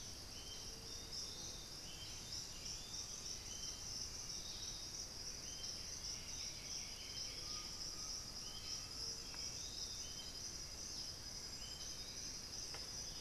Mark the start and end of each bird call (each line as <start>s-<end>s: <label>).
0.0s-13.2s: Bluish-fronted Jacamar (Galbula cyanescens)
0.0s-13.2s: Piratic Flycatcher (Legatus leucophaius)
0.8s-6.3s: unidentified bird
5.6s-7.7s: White-winged Becard (Pachyramphus polychopterus)
7.3s-9.2s: Undulated Tinamou (Crypturellus undulatus)
8.4s-9.7s: Black-billed Thrush (Turdus ignobilis)
10.8s-12.6s: unidentified bird